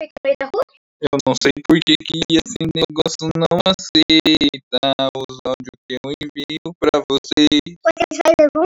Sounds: Throat clearing